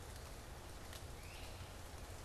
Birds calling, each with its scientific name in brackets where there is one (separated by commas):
Great Crested Flycatcher (Myiarchus crinitus)